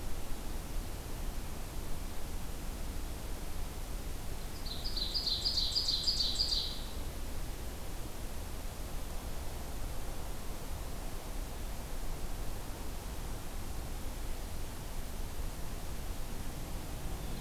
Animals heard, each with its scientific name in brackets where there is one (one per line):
Ovenbird (Seiurus aurocapilla)